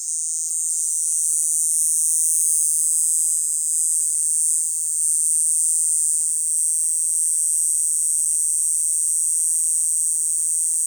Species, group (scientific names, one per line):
Diceroprocta eugraphica
Cicadidae